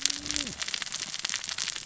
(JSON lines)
{"label": "biophony, cascading saw", "recorder": "SoundTrap 600 or HydroMoth"}